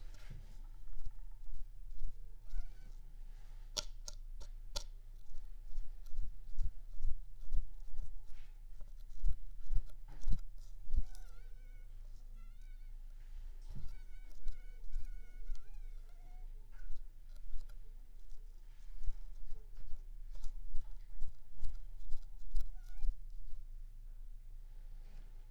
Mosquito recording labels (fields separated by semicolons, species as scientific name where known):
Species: Anopheles squamosus; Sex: female; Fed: unfed; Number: one; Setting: cup